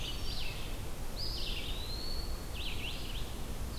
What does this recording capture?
Brown Creeper, Red-eyed Vireo, Eastern Wood-Pewee